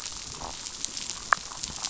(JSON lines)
{"label": "biophony", "recorder": "SoundTrap 500"}